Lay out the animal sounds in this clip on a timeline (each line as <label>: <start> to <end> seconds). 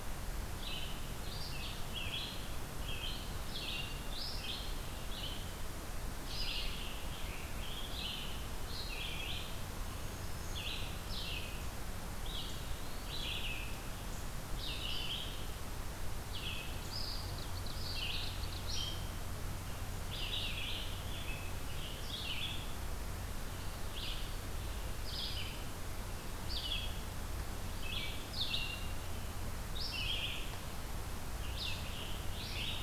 Red-eyed Vireo (Vireo olivaceus): 0.3 to 32.8 seconds
Scarlet Tanager (Piranga olivacea): 6.0 to 8.1 seconds
Black-throated Green Warbler (Setophaga virens): 9.8 to 10.7 seconds
Eastern Wood-Pewee (Contopus virens): 12.5 to 13.2 seconds
Ovenbird (Seiurus aurocapilla): 17.1 to 18.7 seconds
Scarlet Tanager (Piranga olivacea): 20.1 to 22.3 seconds
Scarlet Tanager (Piranga olivacea): 31.2 to 32.8 seconds